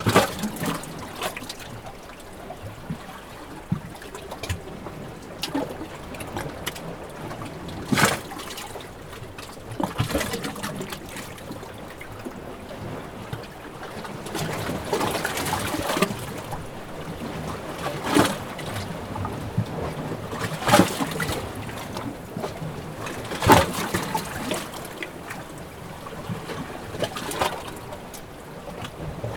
Is someone washing dishes?
no